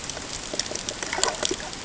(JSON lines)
{"label": "ambient", "recorder": "HydroMoth"}